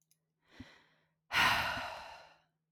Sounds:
Sigh